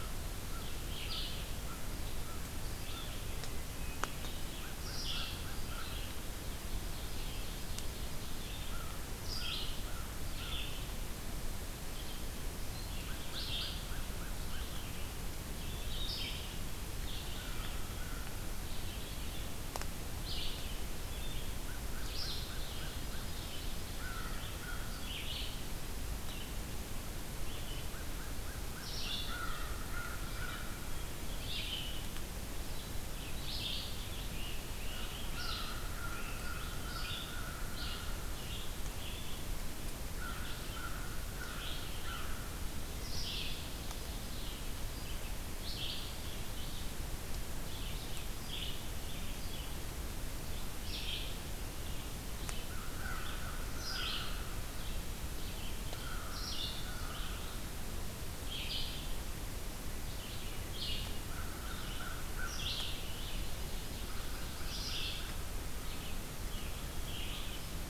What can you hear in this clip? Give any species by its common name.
American Crow, Red-eyed Vireo, Ovenbird, Great Crested Flycatcher